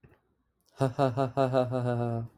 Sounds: Laughter